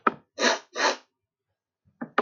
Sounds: Sniff